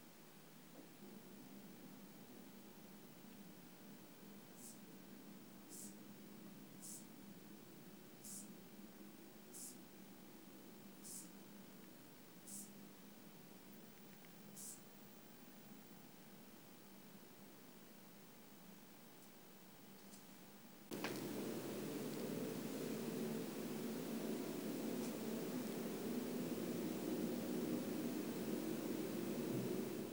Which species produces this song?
Chorthippus brunneus